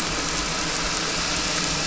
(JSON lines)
{"label": "anthrophony, boat engine", "recorder": "SoundTrap 300"}